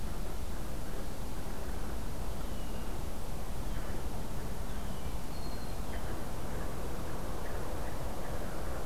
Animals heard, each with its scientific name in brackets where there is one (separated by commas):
Red-winged Blackbird (Agelaius phoeniceus), Blue Jay (Cyanocitta cristata)